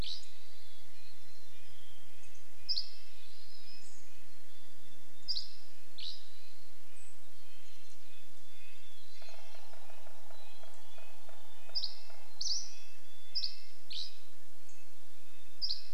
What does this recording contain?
Mountain Chickadee song, Douglas squirrel rattle, Dusky Flycatcher song, Red-breasted Nuthatch song, Hermit Thrush call, unidentified bird chip note, warbler song, woodpecker drumming